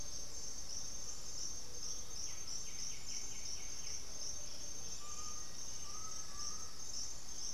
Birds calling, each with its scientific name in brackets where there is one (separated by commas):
Black-faced Antthrush (Formicarius analis), White-winged Becard (Pachyramphus polychopterus), Hauxwell's Thrush (Turdus hauxwelli), unidentified bird, Undulated Tinamou (Crypturellus undulatus)